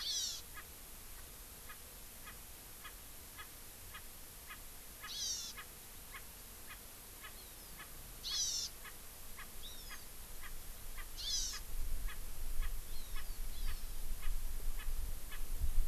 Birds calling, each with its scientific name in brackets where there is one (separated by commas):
Erckel's Francolin (Pternistis erckelii), Hawaii Amakihi (Chlorodrepanis virens)